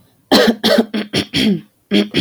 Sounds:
Throat clearing